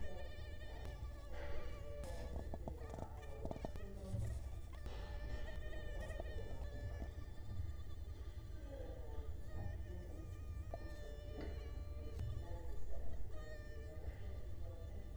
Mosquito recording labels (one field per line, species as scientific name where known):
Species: Culex quinquefasciatus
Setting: cup